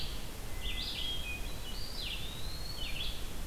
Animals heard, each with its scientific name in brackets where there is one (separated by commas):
Hermit Thrush (Catharus guttatus), Red-eyed Vireo (Vireo olivaceus), Eastern Wood-Pewee (Contopus virens)